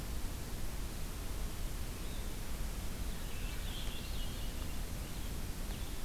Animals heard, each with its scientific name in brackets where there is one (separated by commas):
Swainson's Thrush (Catharus ustulatus)